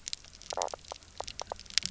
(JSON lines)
{"label": "biophony, knock croak", "recorder": "SoundTrap 300"}